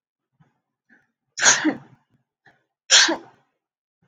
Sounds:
Sneeze